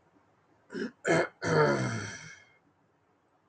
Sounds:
Throat clearing